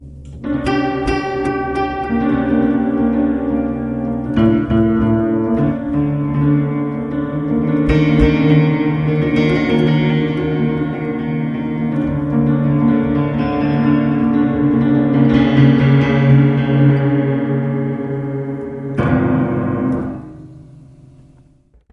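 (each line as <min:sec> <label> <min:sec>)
0:00.4 A detuned piano plays an eerie, improvised melody with vintage, out-of-tune notes wavering in a spooky manner. 0:20.5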